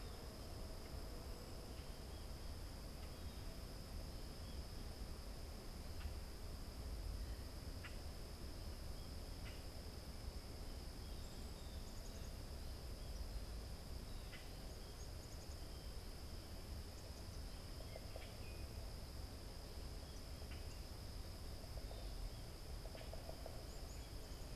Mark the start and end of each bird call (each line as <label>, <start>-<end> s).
Common Grackle (Quiscalus quiscula), 7.4-24.6 s
Black-capped Chickadee (Poecile atricapillus), 10.9-18.4 s